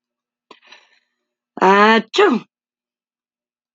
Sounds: Sneeze